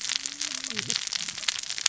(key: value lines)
label: biophony, cascading saw
recorder: SoundTrap 600 or HydroMoth